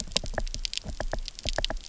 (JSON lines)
{"label": "biophony, knock", "recorder": "SoundTrap 300"}